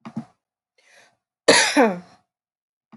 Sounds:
Cough